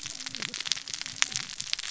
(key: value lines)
label: biophony, cascading saw
recorder: SoundTrap 600 or HydroMoth